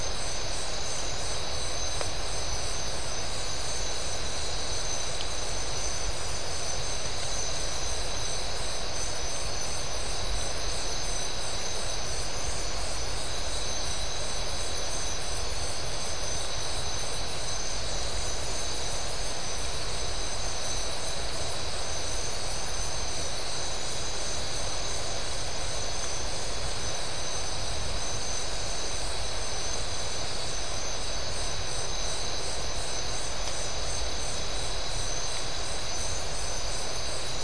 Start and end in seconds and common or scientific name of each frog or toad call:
none